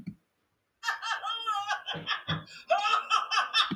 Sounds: Laughter